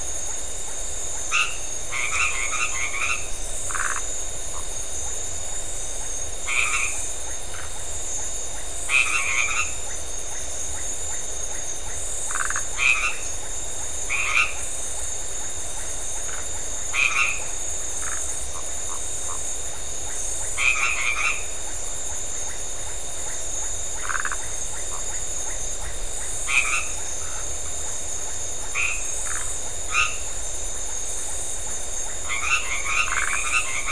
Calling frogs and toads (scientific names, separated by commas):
Boana albomarginata, Phyllomedusa distincta, Leptodactylus notoaktites